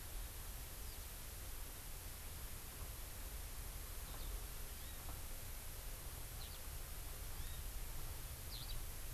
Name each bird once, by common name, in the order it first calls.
Eurasian Skylark, Hawaii Amakihi